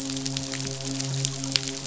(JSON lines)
{"label": "biophony, midshipman", "recorder": "SoundTrap 500"}